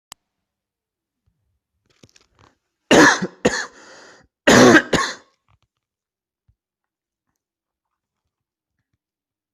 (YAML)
expert_labels:
- quality: ok
  cough_type: dry
  dyspnea: false
  wheezing: false
  stridor: false
  choking: false
  congestion: false
  nothing: true
  diagnosis: upper respiratory tract infection
  severity: mild
age: 36
gender: male
respiratory_condition: true
fever_muscle_pain: false
status: symptomatic